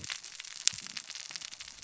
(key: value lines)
label: biophony, cascading saw
recorder: SoundTrap 600 or HydroMoth